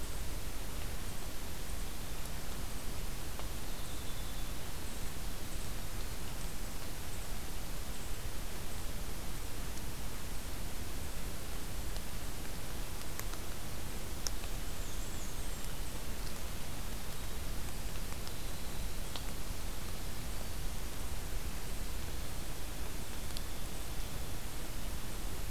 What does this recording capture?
Winter Wren, Black-and-white Warbler